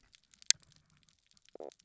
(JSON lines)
{"label": "biophony, stridulation", "recorder": "SoundTrap 300"}